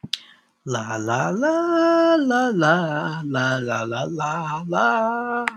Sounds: Sigh